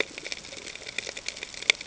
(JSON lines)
{"label": "ambient", "recorder": "HydroMoth"}